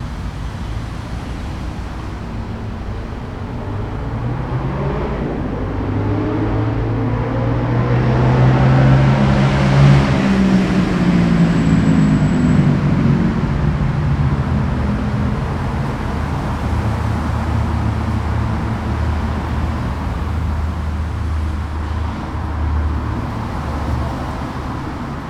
Is a vehicle driving fast?
yes